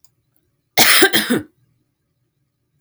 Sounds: Cough